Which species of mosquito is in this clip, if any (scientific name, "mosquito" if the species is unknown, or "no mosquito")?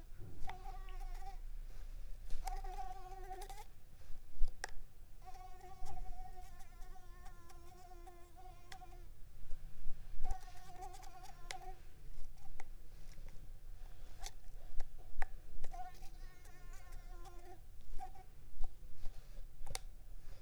Coquillettidia sp.